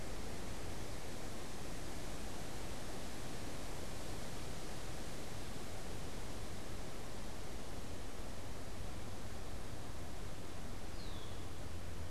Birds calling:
Red-winged Blackbird (Agelaius phoeniceus)

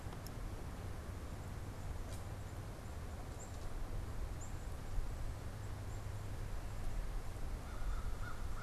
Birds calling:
American Crow (Corvus brachyrhynchos)
Black-capped Chickadee (Poecile atricapillus)

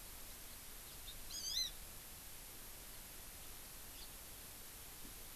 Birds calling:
House Finch (Haemorhous mexicanus)
Hawaii Amakihi (Chlorodrepanis virens)

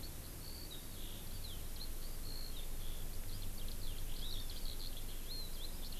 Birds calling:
Eurasian Skylark (Alauda arvensis)
Hawaii Amakihi (Chlorodrepanis virens)

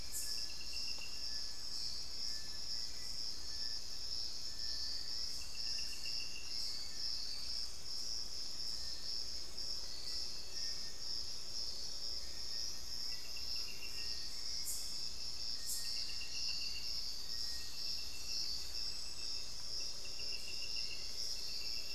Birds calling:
Hauxwell's Thrush (Turdus hauxwelli)
Little Tinamou (Crypturellus soui)

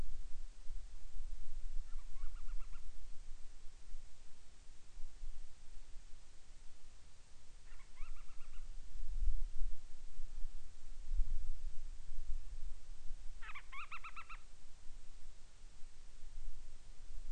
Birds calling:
Band-rumped Storm-Petrel (Hydrobates castro)

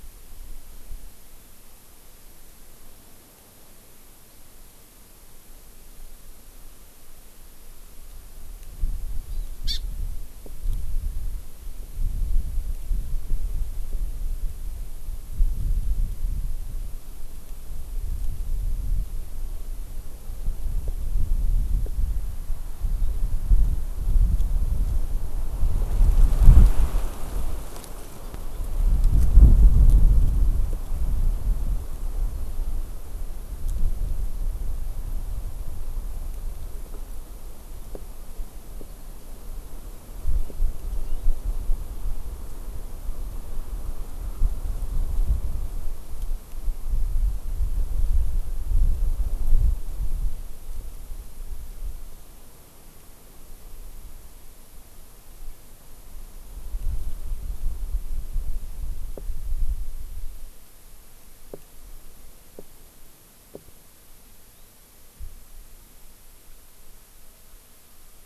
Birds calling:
Hawaii Amakihi (Chlorodrepanis virens)
Warbling White-eye (Zosterops japonicus)

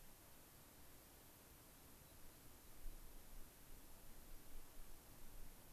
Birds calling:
American Pipit (Anthus rubescens)

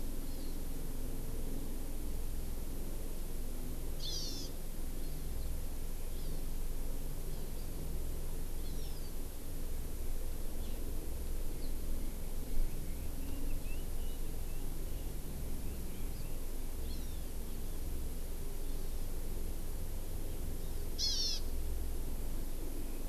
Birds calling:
Red-billed Leiothrix (Leiothrix lutea)
Hawaii Amakihi (Chlorodrepanis virens)

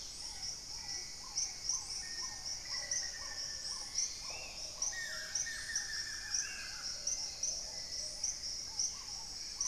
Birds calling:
Black-tailed Trogon (Trogon melanurus)
Red-necked Woodpecker (Campephilus rubricollis)
Buff-throated Woodcreeper (Xiphorhynchus guttatus)
Paradise Tanager (Tangara chilensis)
Plumbeous Pigeon (Patagioenas plumbea)
Spot-winged Antshrike (Pygiptila stellaris)
Hauxwell's Thrush (Turdus hauxwelli)
Amazonian Motmot (Momotus momota)
Black-faced Antthrush (Formicarius analis)
Horned Screamer (Anhima cornuta)
Dusky-capped Greenlet (Pachysylvia hypoxantha)
Dusky-throated Antshrike (Thamnomanes ardesiacus)

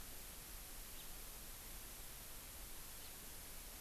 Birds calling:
House Finch (Haemorhous mexicanus)

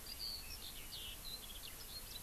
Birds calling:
Eurasian Skylark (Alauda arvensis)

